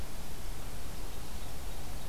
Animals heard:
forest ambience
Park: Marsh-Billings-Rockefeller National Historical Park